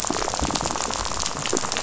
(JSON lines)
{"label": "biophony, rattle", "recorder": "SoundTrap 500"}